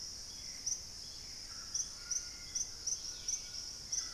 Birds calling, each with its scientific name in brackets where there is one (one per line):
Purple-throated Fruitcrow (Querula purpurata)
White-throated Toucan (Ramphastos tucanus)
Dusky-capped Greenlet (Pachysylvia hypoxantha)
Hauxwell's Thrush (Turdus hauxwelli)
Gray Antbird (Cercomacra cinerascens)